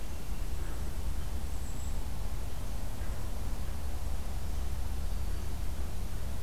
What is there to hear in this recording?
Golden-crowned Kinglet